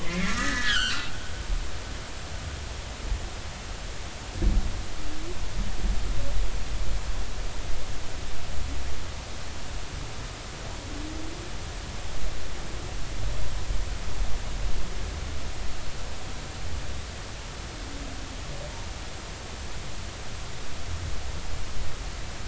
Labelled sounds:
0.0	1.2	humpback whale, 1.1 to 3.4 kHz

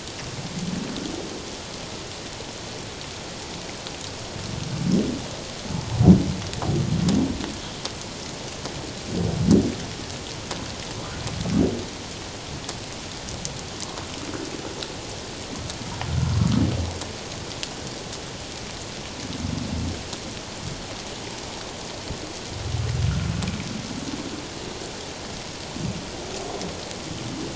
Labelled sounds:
16.3	16.6	humpback whale, 1.1 to 1.4 kHz

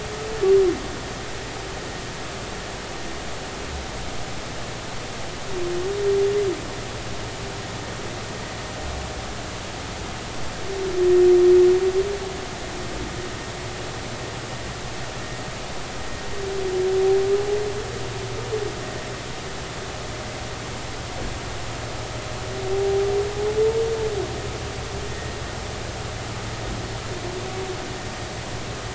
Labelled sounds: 22.7	23.1	humpback whale, 0.80 to 0.83 kHz
25.1	25.3	humpback whale, 1.8 to 1.9 kHz

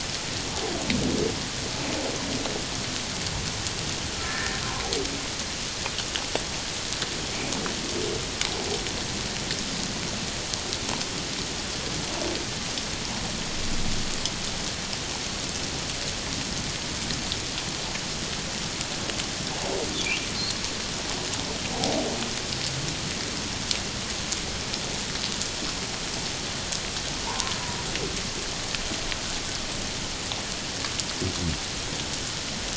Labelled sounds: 4.2	4.6	humpback whale, 1.7 to 1.9 kHz
27.3	27.6	humpback whale, 0.78 to 1.1 kHz

